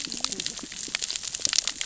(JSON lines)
{"label": "biophony, cascading saw", "recorder": "SoundTrap 600 or HydroMoth"}